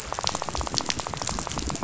{"label": "biophony, rattle", "recorder": "SoundTrap 500"}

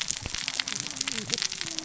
{"label": "biophony, cascading saw", "recorder": "SoundTrap 600 or HydroMoth"}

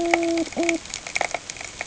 {"label": "ambient", "recorder": "HydroMoth"}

